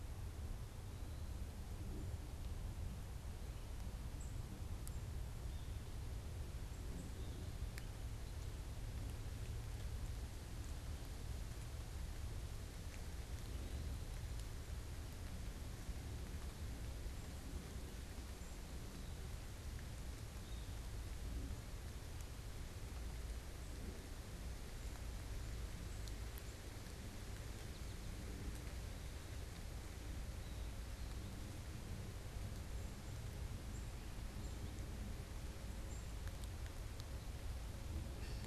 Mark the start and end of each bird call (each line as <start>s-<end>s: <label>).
4.0s-5.1s: unidentified bird
27.3s-28.3s: American Goldfinch (Spinus tristis)
32.8s-38.5s: unidentified bird
37.9s-38.5s: Cooper's Hawk (Accipiter cooperii)